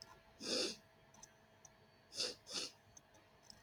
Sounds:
Sniff